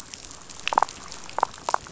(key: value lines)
label: biophony, damselfish
recorder: SoundTrap 500